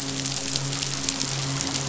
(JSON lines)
{"label": "biophony, midshipman", "recorder": "SoundTrap 500"}